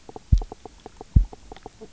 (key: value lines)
label: biophony, knock croak
recorder: SoundTrap 300